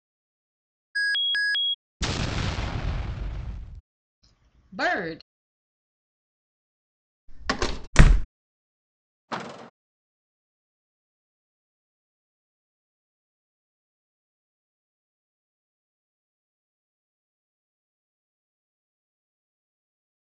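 At the start, an alarm can be heard. Then, about 2 seconds in, an explosion is heard. Next, about 5 seconds in, someone says "bird." Later, about 7 seconds in, a door slams. Following that, about 8 seconds in, there is a door slamming. Finally, about 9 seconds in, a car can be heard.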